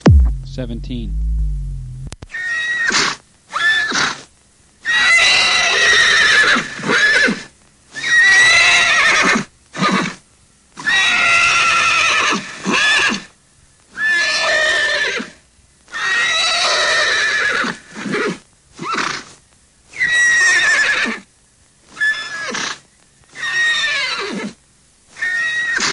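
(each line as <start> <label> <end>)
0.2 A man is speaking clearly with a radio-like sound. 1.2
2.7 A horse neighs loudly and repeatedly with a radio-like sound. 25.9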